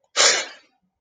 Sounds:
Sneeze